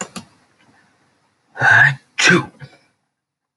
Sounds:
Sneeze